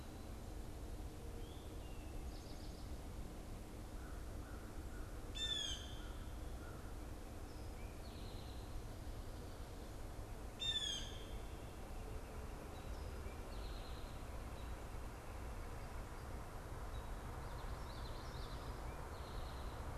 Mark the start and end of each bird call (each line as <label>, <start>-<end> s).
Eastern Towhee (Pipilo erythrophthalmus), 1.2-2.9 s
American Crow (Corvus brachyrhynchos), 3.8-7.2 s
Blue Jay (Cyanocitta cristata), 5.2-11.4 s
Eastern Towhee (Pipilo erythrophthalmus), 7.7-8.8 s
Eastern Towhee (Pipilo erythrophthalmus), 12.8-14.1 s
Common Yellowthroat (Geothlypis trichas), 17.4-18.8 s
Eastern Towhee (Pipilo erythrophthalmus), 18.7-19.9 s